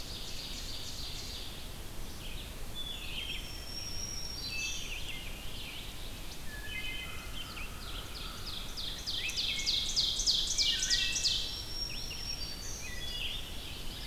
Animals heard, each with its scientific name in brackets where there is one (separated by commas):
Ovenbird (Seiurus aurocapilla), American Crow (Corvus brachyrhynchos), Wood Thrush (Hylocichla mustelina), Red-eyed Vireo (Vireo olivaceus), Black-throated Green Warbler (Setophaga virens)